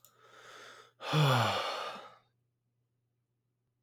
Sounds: Sigh